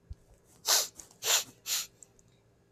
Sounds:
Sniff